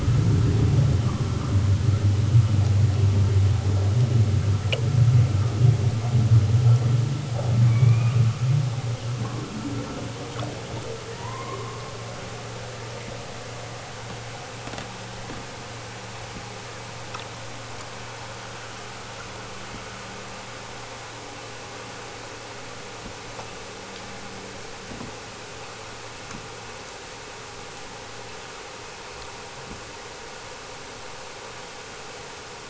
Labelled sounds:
7.6	8.3	killer whale, southern Alaska resident, 1.7 to 4.2 kHz
11.0	12.0	killer whale, southern Alaska resident, 0.41 to 2.6 kHz

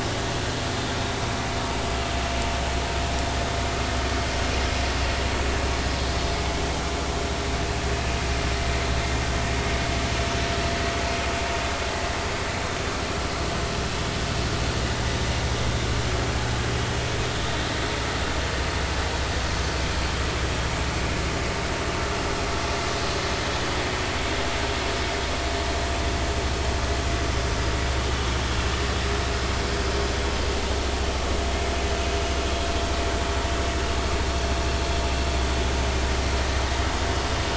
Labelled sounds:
33.5	33.8	vessel noise, 2.6 to 2.7 kHz

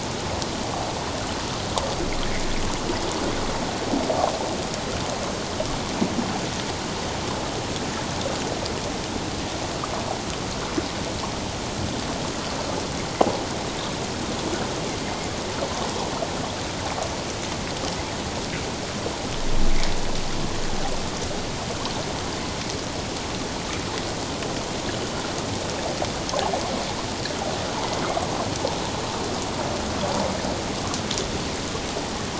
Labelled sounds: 15.0	15.3	killer whale, northern resident, A clan, 2.0 to 2.2 kHz
24.9	25.2	killer whale, northern resident, A clan, 2.9 to 3.0 kHz

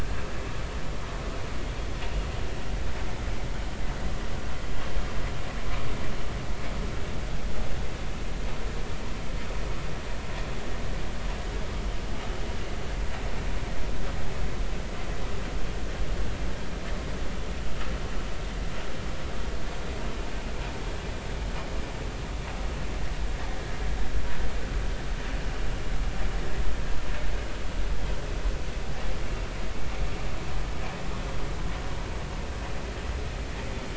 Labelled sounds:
29.2	29.5	vessel noise, 2.7 to 2.8 kHz

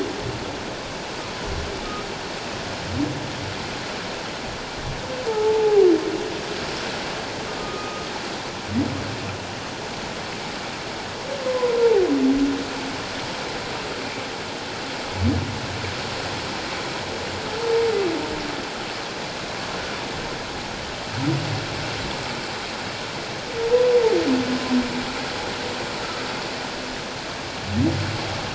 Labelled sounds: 5.3	5.9	humpback whale, 0.78 to 0.97 kHz
7.6	8.1	humpback whale, 1.2 to 1.3 kHz
11.4	11.8	humpback whale, 0.94 to 1.1 kHz
17.6	17.8	humpback whale, 0.84 to 0.97 kHz

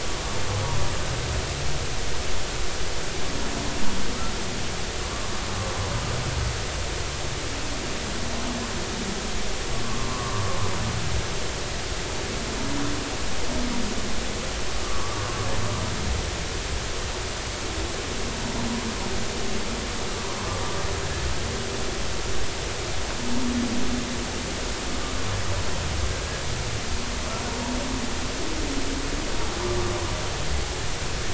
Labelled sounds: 9.8	10.3	humpback whale, 0.99 to 1.2 kHz
14.8	15.3	humpback whale, 0.99 to 1.4 kHz
21.0	21.3	humpback whale, 1.6 to 1.8 kHz
26.1	26.4	humpback whale, 1.5 to 1.7 kHz

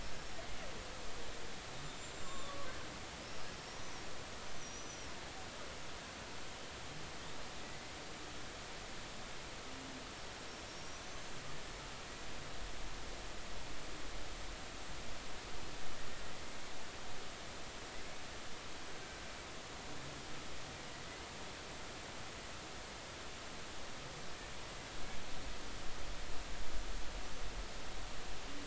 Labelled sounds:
2.0	2.7	killer whale, Bigg's (transient), 1.0 to 7.4 kHz
3.6	5.1	killer whale, Bigg's (transient), 5.3 to 6.2 kHz
10.6	11.3	killer whale, Bigg's (transient), 5.5 to 6.4 kHz

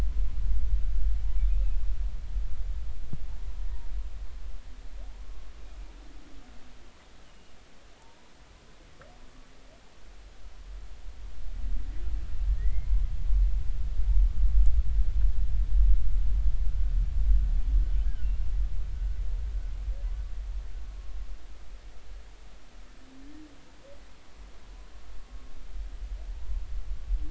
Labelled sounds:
5.1	5.4	humpback whale, 0.83 to 1.1 kHz
7.2	7.6	humpback whale, 2.8 to 3.1 kHz
12.5	12.9	humpback whale, 1.8 to 2.2 kHz
18.0	18.5	humpback whale, 1.4 to 2.8 kHz

